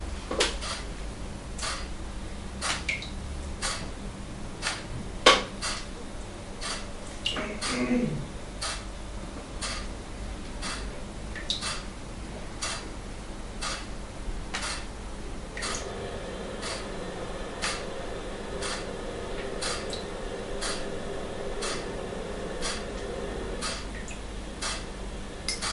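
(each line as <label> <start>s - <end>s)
A clock ticking and water dripping drop by drop with a single muffled sound. 0.1s - 25.7s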